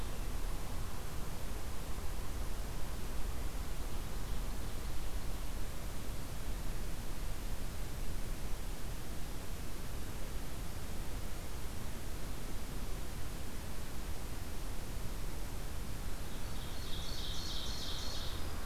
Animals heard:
Ovenbird (Seiurus aurocapilla)

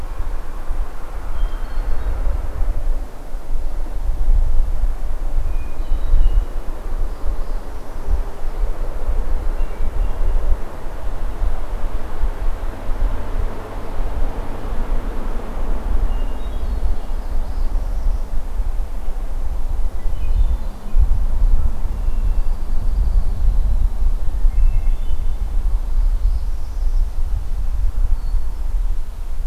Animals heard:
Red-winged Blackbird (Agelaius phoeniceus)
Hermit Thrush (Catharus guttatus)
Northern Parula (Setophaga americana)

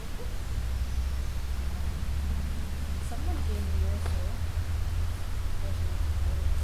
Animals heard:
Hermit Thrush (Catharus guttatus)

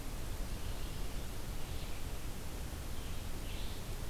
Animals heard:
Red-eyed Vireo (Vireo olivaceus)

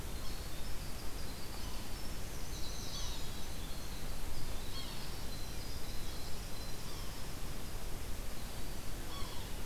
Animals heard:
Winter Wren (Troglodytes hiemalis)
Yellow-bellied Sapsucker (Sphyrapicus varius)

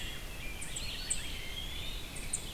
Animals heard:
Eastern Wood-Pewee (Contopus virens)
Rose-breasted Grosbeak (Pheucticus ludovicianus)
unknown mammal
Red-eyed Vireo (Vireo olivaceus)

